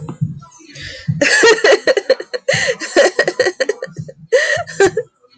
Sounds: Laughter